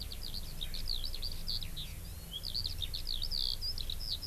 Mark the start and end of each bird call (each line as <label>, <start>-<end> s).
Eurasian Skylark (Alauda arvensis), 0.0-4.3 s